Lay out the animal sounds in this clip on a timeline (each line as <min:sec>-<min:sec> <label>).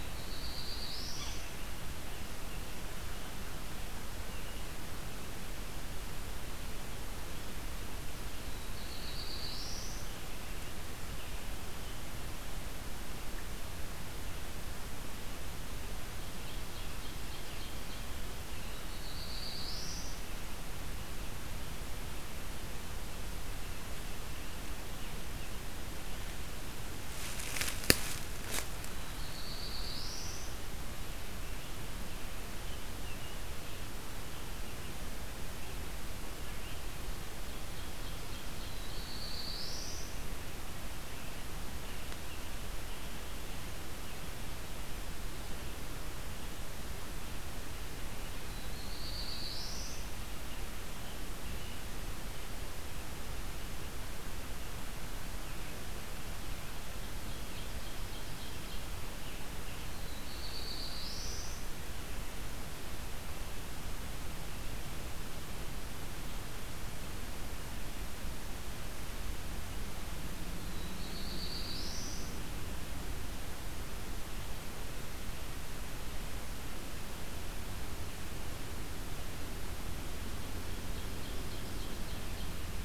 0:00.0-0:01.7 Black-throated Blue Warbler (Setophaga caerulescens)
0:00.9-0:04.8 American Robin (Turdus migratorius)
0:01.1-0:01.4 Yellow-bellied Sapsucker (Sphyrapicus varius)
0:08.6-0:10.3 Black-throated Blue Warbler (Setophaga caerulescens)
0:09.8-0:12.7 American Robin (Turdus migratorius)
0:16.2-0:18.5 Ovenbird (Seiurus aurocapilla)
0:16.7-0:22.0 American Robin (Turdus migratorius)
0:18.8-0:20.4 Black-throated Blue Warbler (Setophaga caerulescens)
0:23.4-0:28.1 American Robin (Turdus migratorius)
0:29.0-0:30.7 Black-throated Blue Warbler (Setophaga caerulescens)
0:31.6-0:34.8 American Robin (Turdus migratorius)
0:37.2-0:38.9 Ovenbird (Seiurus aurocapilla)
0:38.7-0:40.3 Black-throated Blue Warbler (Setophaga caerulescens)
0:41.0-0:44.3 American Robin (Turdus migratorius)
0:48.4-0:50.2 Black-throated Blue Warbler (Setophaga caerulescens)
0:50.2-0:52.0 American Robin (Turdus migratorius)
0:57.1-0:59.6 Ovenbird (Seiurus aurocapilla)
0:59.9-1:01.8 Black-throated Blue Warbler (Setophaga caerulescens)
1:10.7-1:12.5 Black-throated Blue Warbler (Setophaga caerulescens)
1:20.4-1:22.8 Ovenbird (Seiurus aurocapilla)